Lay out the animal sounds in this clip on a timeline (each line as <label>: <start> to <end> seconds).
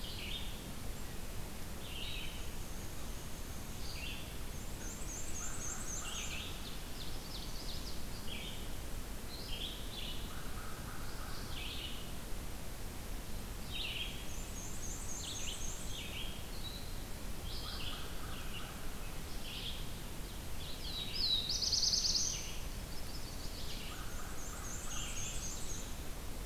Red-eyed Vireo (Vireo olivaceus): 0.0 to 25.9 seconds
Black-and-white Warbler (Mniotilta varia): 2.2 to 6.6 seconds
American Crow (Corvus brachyrhynchos): 5.2 to 7.3 seconds
Ovenbird (Seiurus aurocapilla): 5.6 to 8.0 seconds
American Crow (Corvus brachyrhynchos): 9.8 to 11.6 seconds
Black-and-white Warbler (Mniotilta varia): 14.0 to 16.1 seconds
American Crow (Corvus brachyrhynchos): 17.5 to 19.4 seconds
Black-throated Blue Warbler (Setophaga caerulescens): 20.4 to 22.6 seconds
Chestnut-sided Warbler (Setophaga pensylvanica): 22.6 to 23.9 seconds
American Crow (Corvus brachyrhynchos): 23.4 to 25.9 seconds
Black-and-white Warbler (Mniotilta varia): 23.8 to 26.2 seconds